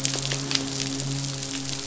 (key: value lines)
label: biophony, midshipman
recorder: SoundTrap 500